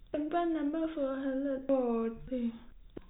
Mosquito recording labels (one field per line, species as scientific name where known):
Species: no mosquito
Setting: cup